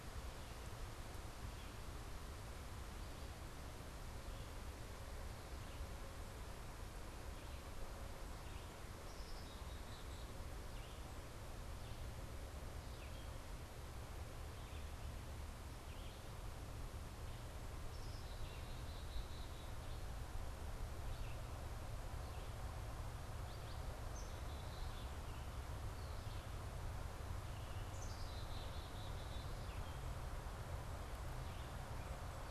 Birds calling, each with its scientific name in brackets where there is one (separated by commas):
Red-eyed Vireo (Vireo olivaceus), Black-capped Chickadee (Poecile atricapillus)